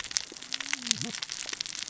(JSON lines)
{"label": "biophony, cascading saw", "recorder": "SoundTrap 600 or HydroMoth"}